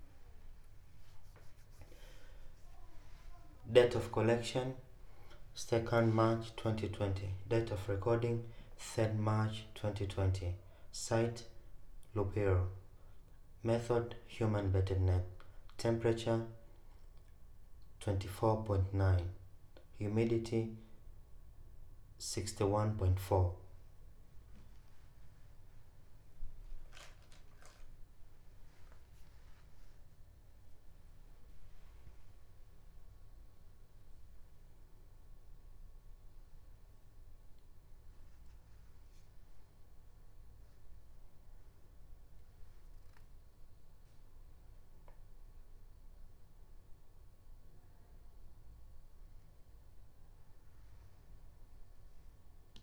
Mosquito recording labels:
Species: no mosquito; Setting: cup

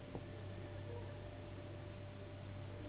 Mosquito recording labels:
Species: Anopheles gambiae s.s.; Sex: female; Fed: unfed; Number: one; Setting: insect culture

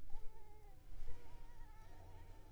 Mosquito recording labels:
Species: Culex pipiens complex; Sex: female; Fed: unfed; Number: one; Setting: cup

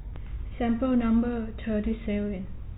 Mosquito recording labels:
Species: no mosquito; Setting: cup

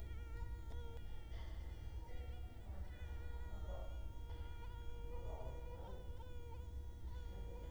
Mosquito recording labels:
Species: Culex quinquefasciatus; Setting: cup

